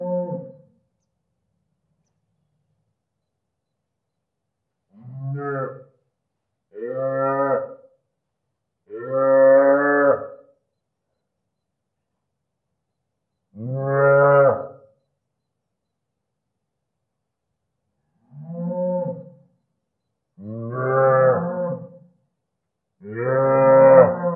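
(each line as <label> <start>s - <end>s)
A cow is mooing. 0.0s - 0.7s
A cow is mooing. 4.9s - 6.0s
A cow is mooing. 6.7s - 7.9s
A cow is mooing. 8.9s - 10.5s
A cow is mooing. 13.5s - 14.8s
A cow is mooing. 18.2s - 19.4s
Cows are mooing. 20.3s - 22.1s
Cows are mooing. 22.9s - 24.4s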